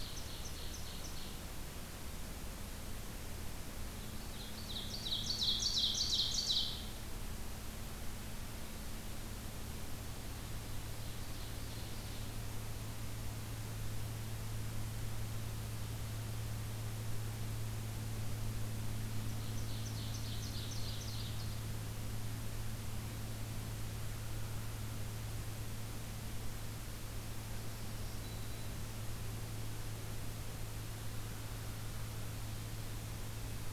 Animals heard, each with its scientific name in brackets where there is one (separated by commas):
Ovenbird (Seiurus aurocapilla), American Crow (Corvus brachyrhynchos), Black-throated Green Warbler (Setophaga virens)